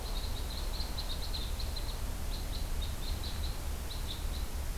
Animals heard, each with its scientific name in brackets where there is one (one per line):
Red Crossbill (Loxia curvirostra)